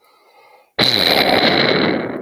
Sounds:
Sigh